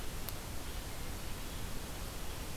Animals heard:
forest ambience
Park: Hubbard Brook Experimental Forest